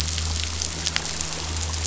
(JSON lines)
{"label": "anthrophony, boat engine", "recorder": "SoundTrap 500"}